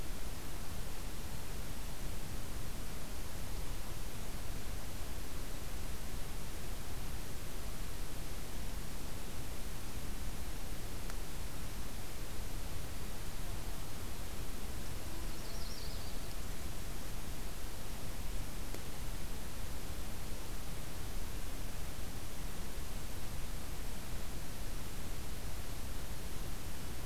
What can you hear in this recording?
Yellow-rumped Warbler